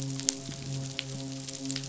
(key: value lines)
label: biophony, midshipman
recorder: SoundTrap 500